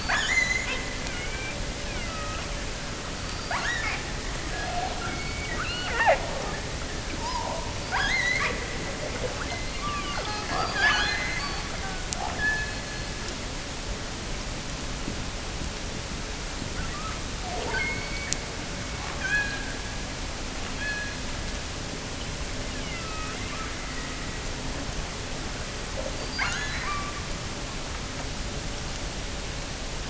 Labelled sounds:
0.0	1.5	killer whale, offshore, 0.57 to 8.0 kHz
1.8	2.6	killer whale, offshore, 1.1 to 3.4 kHz
3.2	4.2	killer whale, offshore, 0.50 to 7.3 kHz
4.5	6.3	killer whale, offshore, 0.36 to 4.9 kHz
7.1	8.7	killer whale, offshore, 0.32 to 7.4 kHz
9.4	13.3	killer whale, offshore, 0.32 to 7.2 kHz
16.7	18.5	killer whale, offshore, 0.30 to 4.8 kHz
19.0	19.8	killer whale, offshore, 0.77 to 4.5 kHz
20.7	21.3	killer whale, offshore, 1.4 to 4.5 kHz
22.6	23.5	killer whale, offshore, 1.1 to 3.4 kHz
26.2	27.3	killer whale, offshore, 0.55 to 6.8 kHz

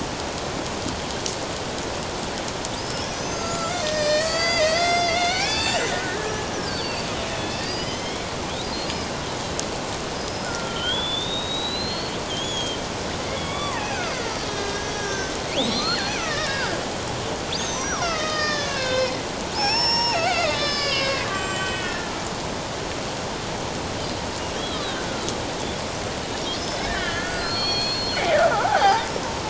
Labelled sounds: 2.8	8.3	killer whale, Bigg's (transient), 1.2 to 7.7 kHz
10.2	16.8	killer whale, Bigg's (transient), 0.81 to 7.9 kHz
17.6	19.2	killer whale, Bigg's (transient), 1.2 to 6.8 kHz
19.5	22.2	killer whale, Bigg's (transient), 0.78 to 7.8 kHz
24.5	25.0	killer whale, Bigg's (transient), 3.0 to 4.1 kHz
26.8	29.1	killer whale, Bigg's (transient), 0.78 to 5.1 kHz

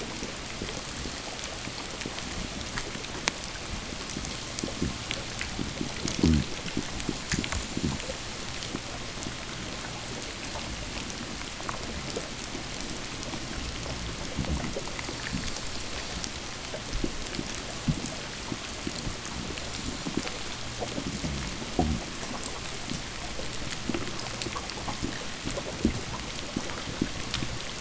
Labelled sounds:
5.9	6.6	fish, groan, 0 to 0.91 kHz

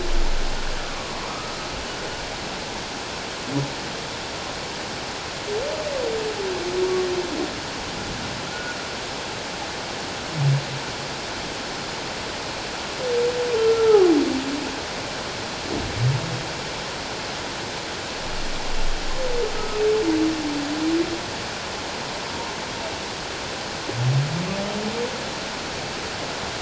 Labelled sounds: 0.8	1.5	humpback whale, 0.88 to 1.3 kHz
8.5	8.8	humpback whale, 1.3 to 1.5 kHz
13.5	14.1	humpback whale, 1.1 to 1.4 kHz
22.3	22.5	humpback whale, 0.84 to 1.1 kHz

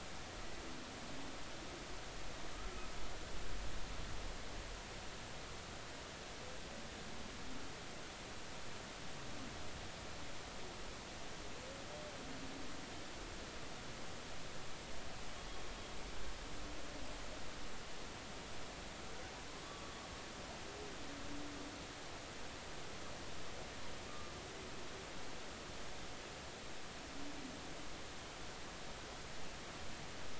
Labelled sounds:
19.6	19.9	humpback whale, 1.1 to 1.2 kHz
24.1	24.3	humpback whale, 1.1 to 1.3 kHz

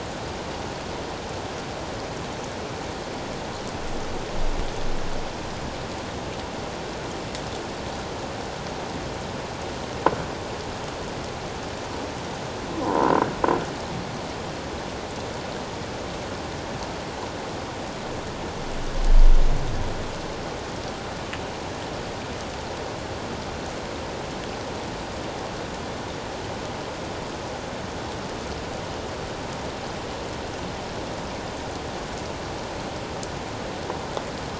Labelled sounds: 12.8	13.2	croaking sound likely from a nearby submerged object, 0.84 to 1.1 kHz

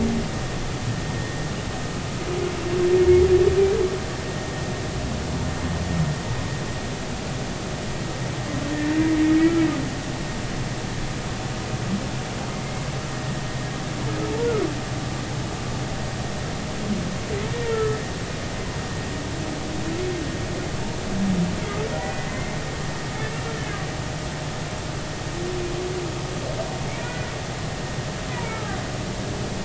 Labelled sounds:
8.7	9.0	humpback whale, 1.7 to 1.9 kHz
17.6	18.0	humpback whale, 1.2 to 1.5 kHz
22.0	22.6	humpback whale, 1.9 to 2.2 kHz
23.5	23.8	humpback whale, 1.6 to 1.8 kHz
26.9	27.3	humpback whale, 1.4 to 2.5 kHz
28.3	28.8	humpback whale, 1.2 to 2.6 kHz

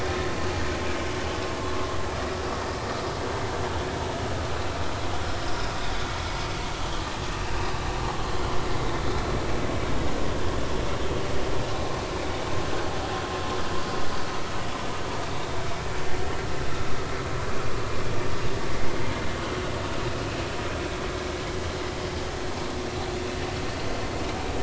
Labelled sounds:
7.3	7.7	vessel noise, 2.5 to 2.8 kHz
8.0	9.0	vessel noise, 1.0 to 4.0 kHz

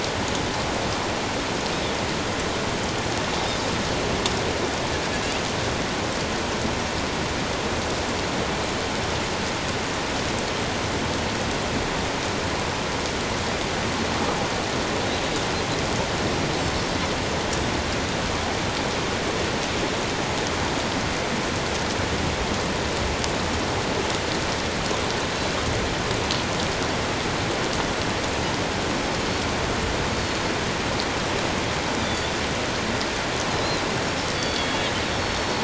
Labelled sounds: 34.3	35.6	Pacific white-sided dolphin, 3.1 to 5.5 kHz

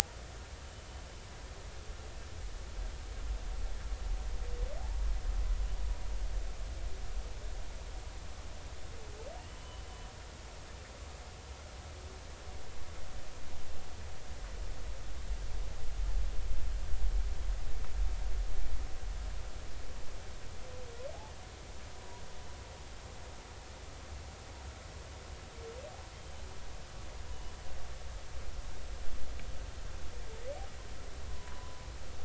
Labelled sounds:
9.5	9.8	humpback whale, 2.9 to 3.1 kHz
31.3	31.9	humpback whale, 0.93 to 1.1 kHz

